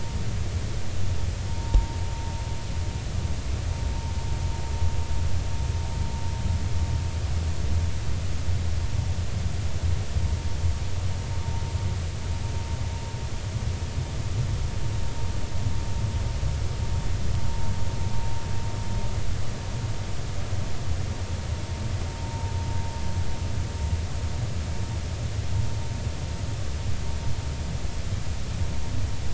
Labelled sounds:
1.5	2.0	vessel noise, 0.83 to 0.99 kHz
22.2	22.5	vessel noise, 0.83 to 0.96 kHz

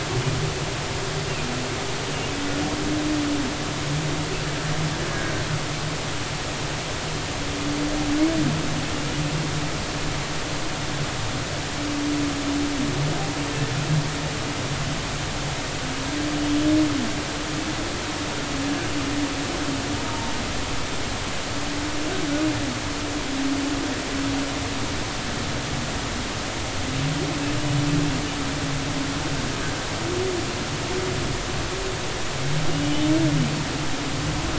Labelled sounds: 20.1	20.3	humpback whale, 0.86 to 0.96 kHz

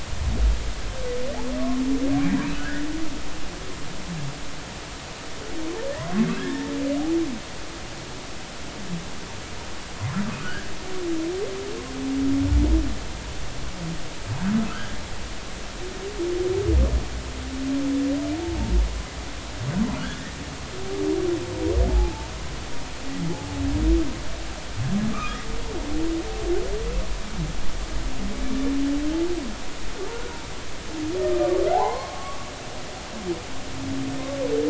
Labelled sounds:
2.6	2.8	humpback whale, 1.4 to 2.0 kHz
6.4	6.7	humpback whale, 1.6 to 1.9 kHz
10.4	10.7	humpback whale, 1.4 to 1.8 kHz
14.7	14.9	humpback whale, 1.2 to 1.8 kHz
20.0	20.3	humpback whale, 1.3 to 1.7 kHz
21.9	22.3	humpback whale, 0.80 to 0.93 kHz
25.1	25.4	humpback whale, 1.1 to 1.3 kHz
31.8	32.1	humpback whale, 2.0 to 2.2 kHz
32.7	33.5	humpback whale, 0.80 to 1.2 kHz

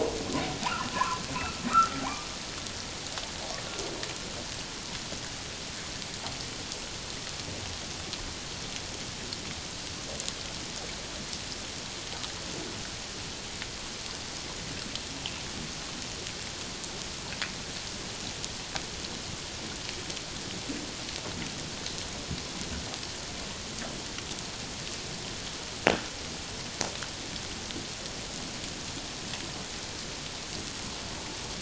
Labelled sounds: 0.9	1.2	humpback whale, 0.94 to 1.2 kHz
1.7	2.3	humpback whale, 0.78 to 1.6 kHz

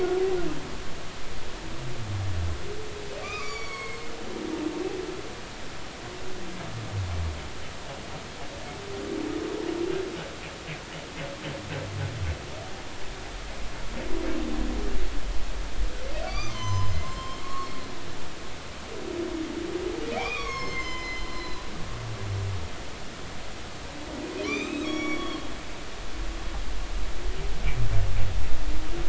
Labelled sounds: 3.2	4.1	humpback whale, 1.0 to 7.0 kHz
4.7	5.0	humpback whale, 7.5 to 7.9 kHz
16.3	17.7	humpback whale, 0.96 to 7.4 kHz
20.1	21.7	humpback whale, 0.80 to 7.5 kHz
24.4	25.5	humpback whale, 1.1 to 6.8 kHz

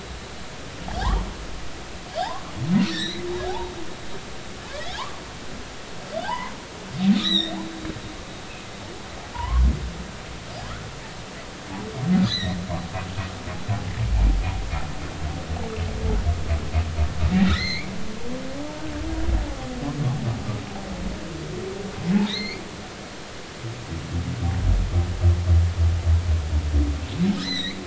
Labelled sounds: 2.9	3.7	humpback whale, 0.80 to 6.0 kHz
6.2	6.5	humpback whale, 0.80 to 1.1 kHz
7.2	7.6	humpback whale, 1.7 to 6.0 kHz
8.1	9.6	humpback whale, 0.86 to 4.1 kHz
12.3	12.6	humpback whale, 1.7 to 4.3 kHz
17.4	17.9	humpback whale, 1.7 to 6.6 kHz
22.2	22.6	humpback whale, 1.9 to 4.9 kHz
27.4	27.8	humpback whale, 1.5 to 6.1 kHz

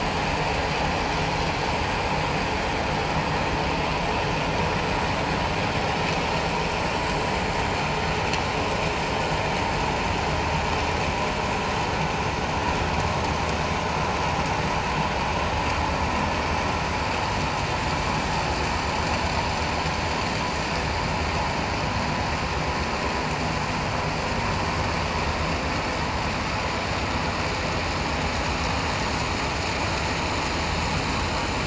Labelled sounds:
8.8	9.0	vessel noise, 6.7 to 6.8 kHz

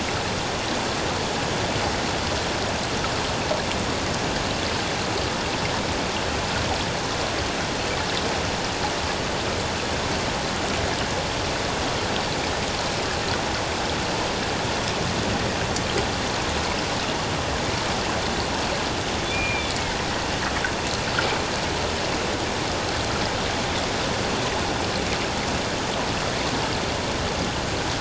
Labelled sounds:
19.3	19.7	killer whale, northern resident, A clan, AA subclan, call N04, 2.2 to 2.5 kHz

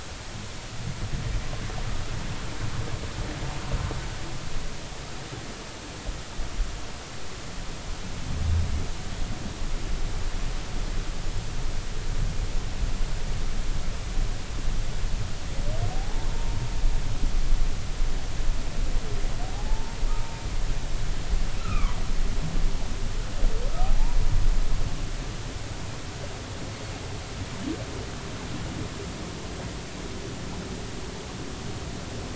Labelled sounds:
15.9	16.6	humpback whale, 0.80 to 1.1 kHz
19.5	20.0	humpback whale, 0.80 to 0.96 kHz
21.6	22.0	humpback whale, 0.93 to 2.7 kHz
23.8	24.2	humpback whale, 0.80 to 0.99 kHz

